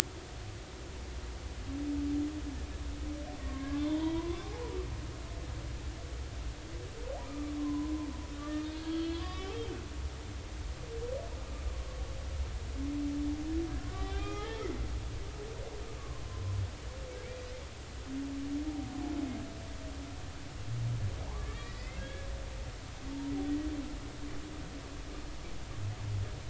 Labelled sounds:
3.4	4.8	humpback whale, 0.80 to 3.6 kHz
7.2	7.9	humpback whale, 0.90 to 1.3 kHz
8.4	9.7	humpback whale, 0.96 to 4.9 kHz
13.9	14.7	humpback whale, 0.80 to 4.1 kHz
16.0	16.6	humpback whale, 0.96 to 1.2 kHz
21.3	22.3	humpback whale, 0.80 to 5.2 kHz

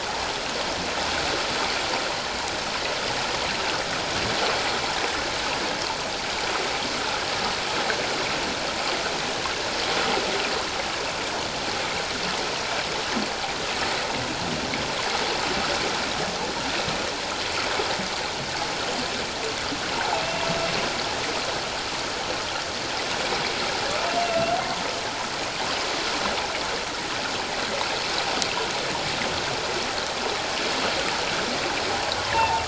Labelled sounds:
24.0	24.5	humpback whale, 2.6 to 2.8 kHz
32.3	32.6	humpback whale, 0.78 to 1.1 kHz

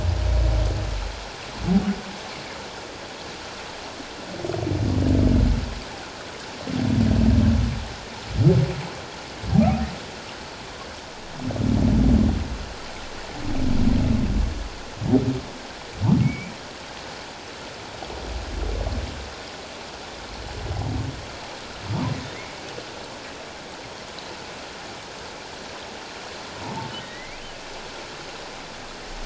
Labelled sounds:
16.2	16.5	humpback whale, 2.1 to 2.4 kHz
27.0	27.4	humpback whale, 1.8 to 2.6 kHz

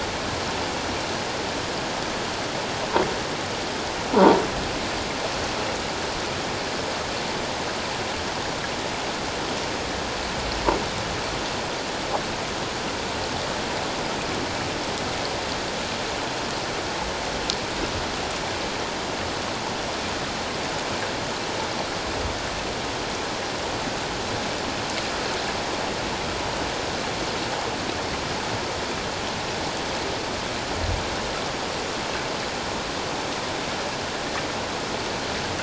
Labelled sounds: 4.1	4.4	croaking sound likely from a nearby submerged object, 0.88 to 1.0 kHz

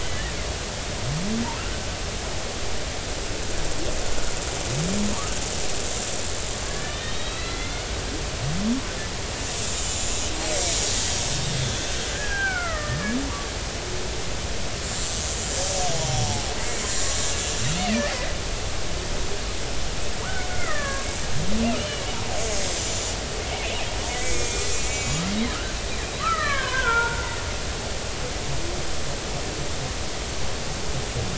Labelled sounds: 0.1	0.3	killer whale, Bigg's (transient), 1.6 to 2.0 kHz
6.7	7.8	killer whale, Bigg's (transient), 1.6 to 4.2 kHz
9.8	10.7	killer whale, Bigg's (transient), 7.1 to 7.6 kHz
11.5	13.2	killer whale, Bigg's (transient), 1.2 to 3.5 kHz
14.8	15.1	killer whale, Bigg's (transient), 7.2 to 7.5 kHz
20.2	21.1	killer whale, Bigg's (transient), 0.90 to 2.2 kHz
21.8	22.0	killer whale, Bigg's (transient), 2.8 to 3.0 kHz
24.2	25.2	killer whale, Bigg's (transient), 2.1 to 6.9 kHz
26.2	27.2	killer whale, Bigg's (transient), 0.86 to 2.0 kHz

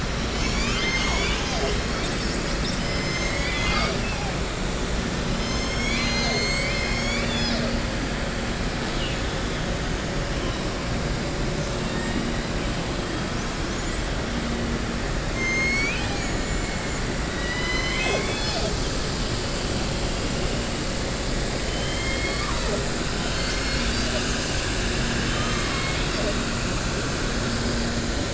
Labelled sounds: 11.7	12.2	killer whale, southern resident, 0.90 to 4.6 kHz
15.3	16.7	killer whale, southern resident, 1.4 to 7.3 kHz
17.3	19.0	killer whale, southern resident, 0.45 to 7.0 kHz
24.8	26.2	killer whale, southern resident, 1.1 to 5.4 kHz

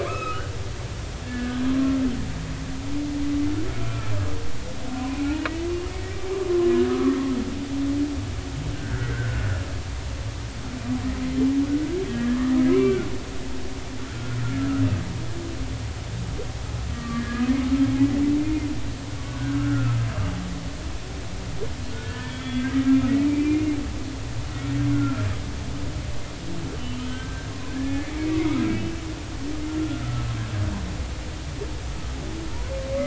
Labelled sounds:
0.0	0.5	humpback whale, 1.0 to 2.7 kHz
1.2	1.6	humpback whale, 1.4 to 1.8 kHz
3.8	4.1	humpback whale, 1.3 to 1.4 kHz
6.9	7.2	humpback whale, 1.0 to 1.3 kHz
8.7	9.5	humpback whale, 1.3 to 1.7 kHz
12.1	12.4	humpback whale, 1.6 to 1.8 kHz
12.7	13.0	humpback whale, 2.1 to 2.8 kHz
14.1	14.8	humpback whale, 1.2 to 1.5 kHz
16.9	17.4	humpback whale, 1.1 to 1.8 kHz
19.2	20.1	humpback whale, 0.96 to 1.7 kHz
21.9	22.7	humpback whale, 1.4 to 3.4 kHz
23.3	23.7	humpback whale, 2.2 to 2.5 kHz
24.9	25.2	humpback whale, 1.3 to 1.5 kHz
26.7	29.0	humpback whale, 0.93 to 3.2 kHz
30.0	30.3	humpback whale, 1.2 to 1.4 kHz

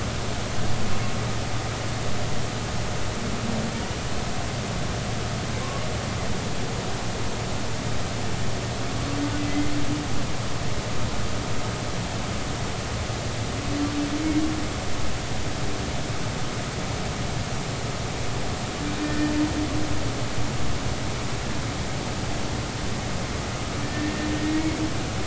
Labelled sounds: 9.4	9.7	humpback whale, 2.0 to 2.2 kHz
19.0	19.4	humpback whale, 1.7 to 1.9 kHz
23.8	24.3	humpback whale, 1.7 to 1.9 kHz

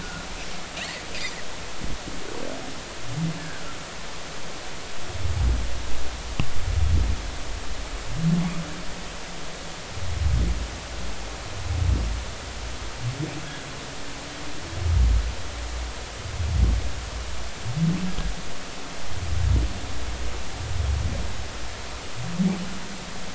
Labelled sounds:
0.0	0.3	humpback whale, 1.3 to 1.6 kHz
3.4	3.6	humpback whale, 1.5 to 1.8 kHz

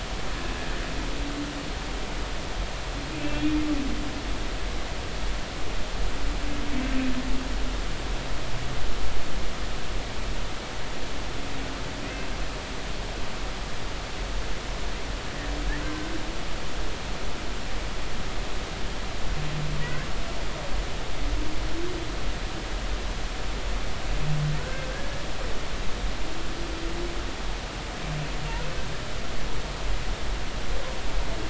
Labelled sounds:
3.2	3.6	humpback whale, 2.3 to 3.4 kHz
15.8	16.1	humpback whale, 1.5 to 1.6 kHz
24.6	24.9	humpback whale, 1.4 to 1.6 kHz

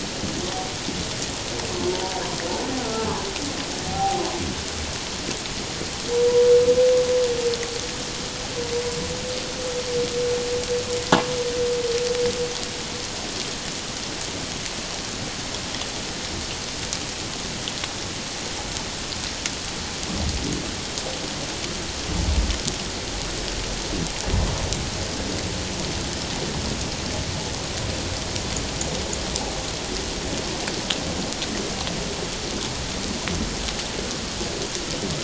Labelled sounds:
2.8	3.1	humpback whale, 1.3 to 1.5 kHz
3.9	4.2	humpback whale, 0.78 to 0.84 kHz

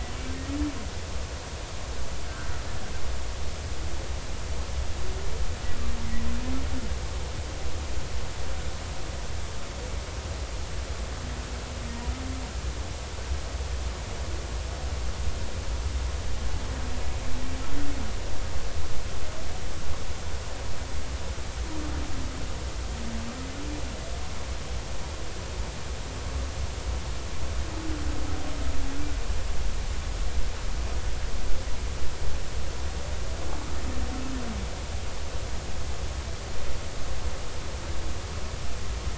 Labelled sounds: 2.2	2.5	humpback whale, 1.3 to 1.7 kHz

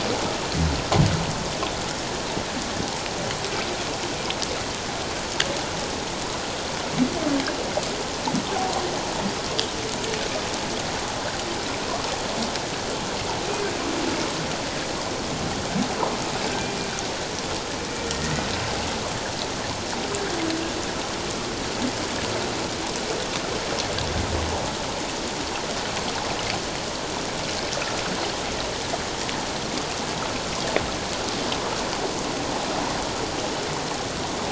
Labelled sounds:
18.0	18.3	humpback whale, 1.8 to 1.9 kHz

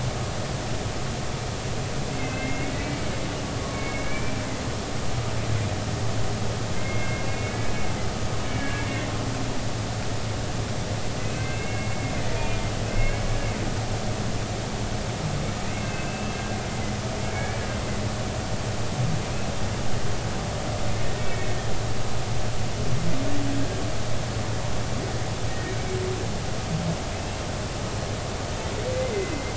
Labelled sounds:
2.2	2.5	humpback whale, 2.5 to 2.7 kHz
2.8	4.4	humpback whale, 1.0 to 2.8 kHz
6.8	7.6	humpback whale, 1.6 to 2.8 kHz
8.5	9.1	humpback whale, 1.6 to 2.3 kHz
11.2	12.6	humpback whale, 1.5 to 2.8 kHz
12.9	13.4	humpback whale, 2.0 to 2.3 kHz
15.7	16.4	humpback whale, 2.0 to 2.7 kHz
17.3	17.6	humpback whale, 2.1 to 2.4 kHz
21.2	21.6	humpback whale, 2.1 to 2.3 kHz
25.5	25.8	humpback whale, 1.8 to 1.9 kHz
27.1	27.4	humpback whale, 2.5 to 2.8 kHz

